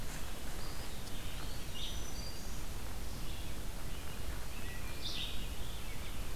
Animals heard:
Red-eyed Vireo (Vireo olivaceus), Wood Thrush (Hylocichla mustelina), Black-throated Green Warbler (Setophaga virens), Eastern Wood-Pewee (Contopus virens)

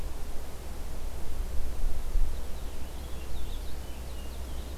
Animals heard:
Purple Finch (Haemorhous purpureus)

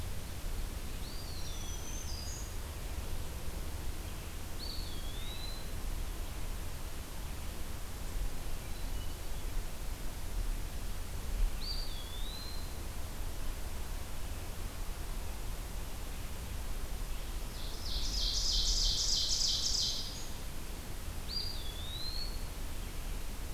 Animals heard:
Ovenbird (Seiurus aurocapilla), Black-throated Green Warbler (Setophaga virens), Hermit Thrush (Catharus guttatus), Eastern Wood-Pewee (Contopus virens)

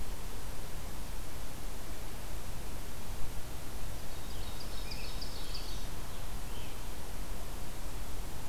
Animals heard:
Ovenbird (Seiurus aurocapilla), Black-throated Green Warbler (Setophaga virens), Scarlet Tanager (Piranga olivacea)

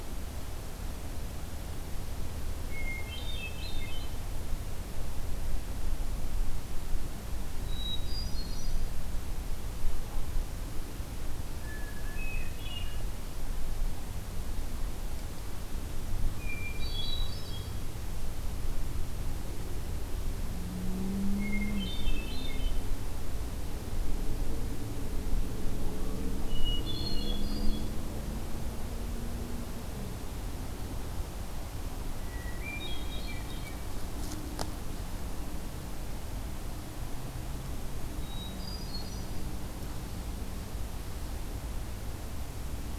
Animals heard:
Hermit Thrush (Catharus guttatus)

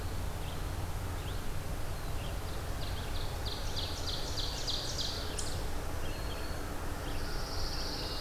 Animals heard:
Eastern Chipmunk (Tamias striatus), Ovenbird (Seiurus aurocapilla), Pine Warbler (Setophaga pinus), Red-eyed Vireo (Vireo olivaceus), Black-throated Green Warbler (Setophaga virens), Black-throated Blue Warbler (Setophaga caerulescens)

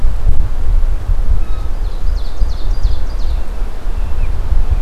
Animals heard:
Ovenbird (Seiurus aurocapilla)

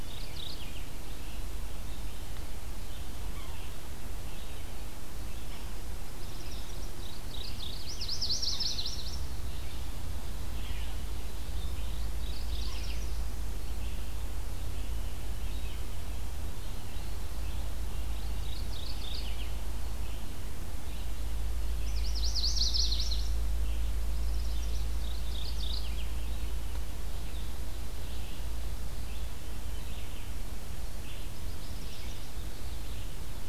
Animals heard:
Yellow-bellied Sapsucker (Sphyrapicus varius), Chestnut-sided Warbler (Setophaga pensylvanica), Red-eyed Vireo (Vireo olivaceus), Mourning Warbler (Geothlypis philadelphia), Magnolia Warbler (Setophaga magnolia)

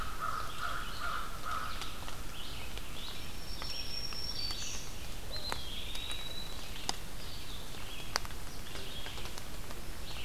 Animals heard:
Red-eyed Vireo (Vireo olivaceus), American Crow (Corvus brachyrhynchos), Eastern Wood-Pewee (Contopus virens), Black-throated Green Warbler (Setophaga virens)

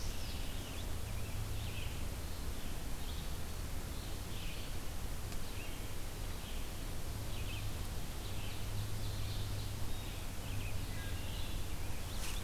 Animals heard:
Wood Thrush (Hylocichla mustelina), Ovenbird (Seiurus aurocapilla), Red-eyed Vireo (Vireo olivaceus), Indigo Bunting (Passerina cyanea)

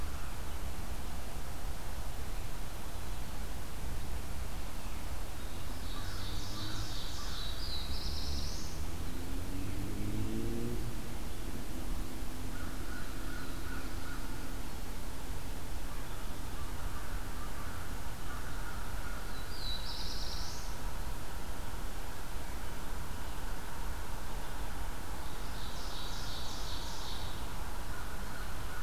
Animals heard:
Ovenbird (Seiurus aurocapilla), Black-throated Blue Warbler (Setophaga caerulescens), American Crow (Corvus brachyrhynchos)

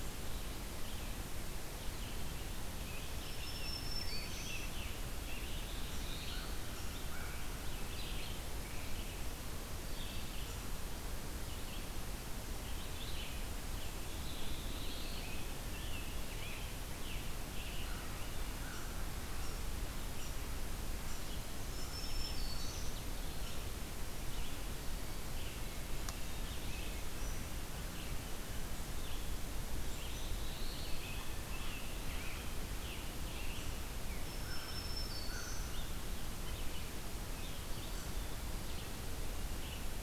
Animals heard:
Black-throated Blue Warbler (Setophaga caerulescens), unknown mammal, Scarlet Tanager (Piranga olivacea), Red-eyed Vireo (Vireo olivaceus), Black-throated Green Warbler (Setophaga virens), Rose-breasted Grosbeak (Pheucticus ludovicianus), American Crow (Corvus brachyrhynchos)

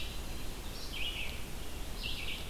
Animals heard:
Red-eyed Vireo (Vireo olivaceus)

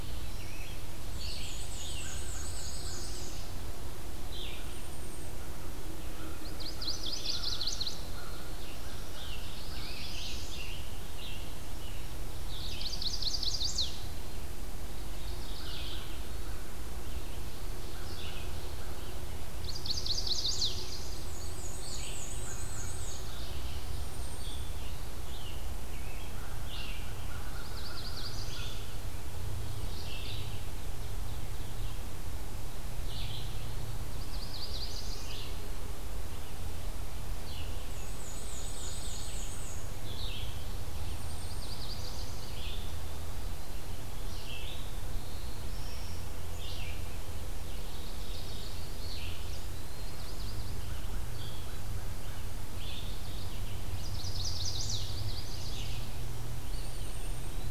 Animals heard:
Chestnut-sided Warbler (Setophaga pensylvanica), Mourning Warbler (Geothlypis philadelphia), Black-throated Blue Warbler (Setophaga caerulescens), Eastern Wood-Pewee (Contopus virens), Golden-crowned Kinglet (Regulus satrapa), Ovenbird (Seiurus aurocapilla), Red-eyed Vireo (Vireo olivaceus), American Crow (Corvus brachyrhynchos), Scarlet Tanager (Piranga olivacea), Black-and-white Warbler (Mniotilta varia)

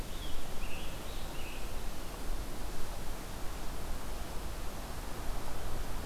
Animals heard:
Scarlet Tanager (Piranga olivacea)

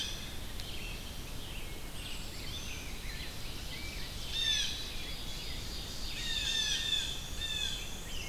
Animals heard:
Wood Thrush (Hylocichla mustelina), Blue Jay (Cyanocitta cristata), Red-eyed Vireo (Vireo olivaceus), Black-capped Chickadee (Poecile atricapillus), Ovenbird (Seiurus aurocapilla), Black-and-white Warbler (Mniotilta varia), Black-throated Blue Warbler (Setophaga caerulescens), Rose-breasted Grosbeak (Pheucticus ludovicianus)

